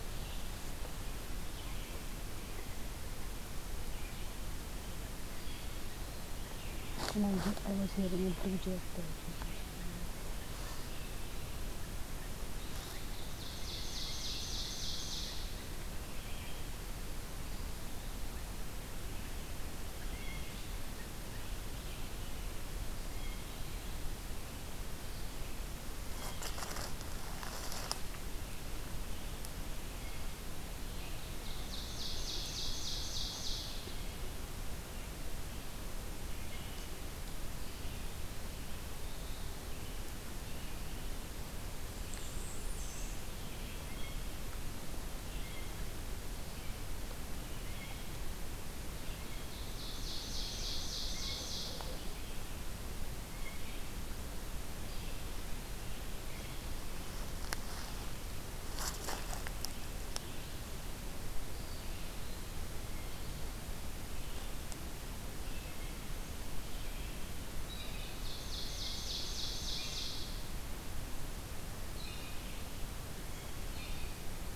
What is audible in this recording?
Red-eyed Vireo, Ovenbird, Blue Jay, Blackburnian Warbler